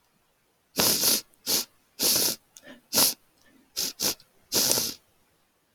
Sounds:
Sniff